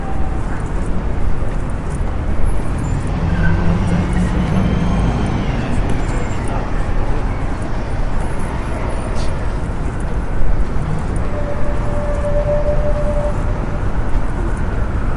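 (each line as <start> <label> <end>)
0.0 People are muffledly talking in the background. 15.2
0.0 Heavy traffic noise. 15.2
3.4 A car accelerates loudly. 5.0
12.4 A tram comes to a loud stop. 13.7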